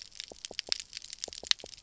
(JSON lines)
{"label": "biophony", "recorder": "SoundTrap 300"}